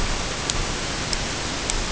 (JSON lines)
{"label": "ambient", "recorder": "HydroMoth"}